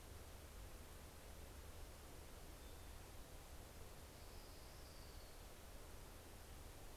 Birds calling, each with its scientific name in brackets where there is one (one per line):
Orange-crowned Warbler (Leiothlypis celata)